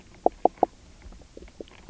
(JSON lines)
{"label": "biophony, knock croak", "recorder": "SoundTrap 300"}